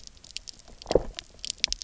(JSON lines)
{"label": "biophony, low growl", "recorder": "SoundTrap 300"}